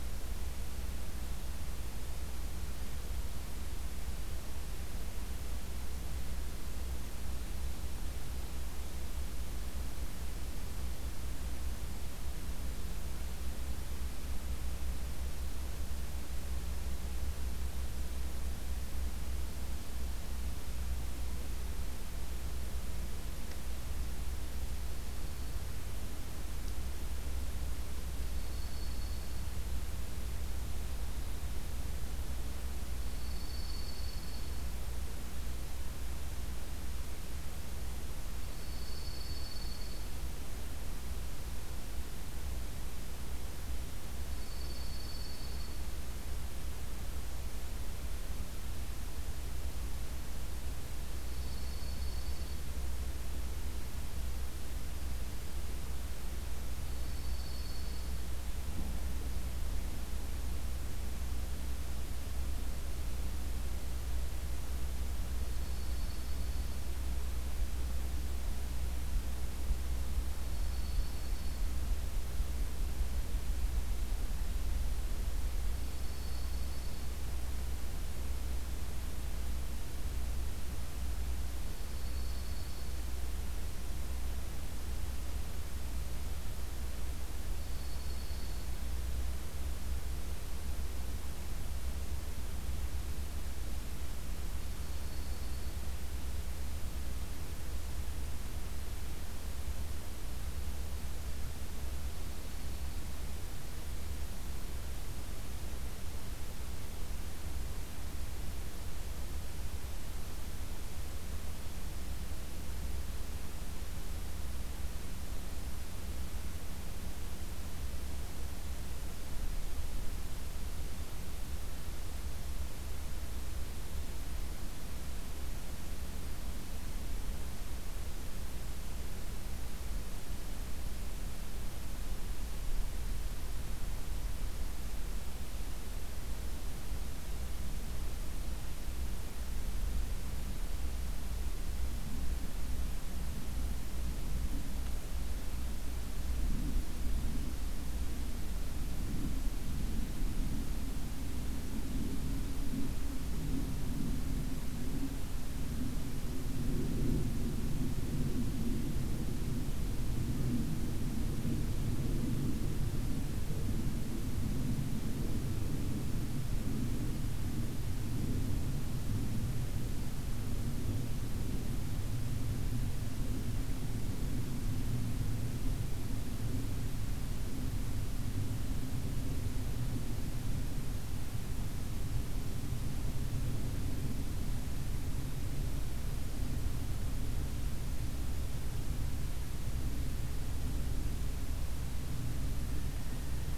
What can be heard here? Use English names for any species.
Dark-eyed Junco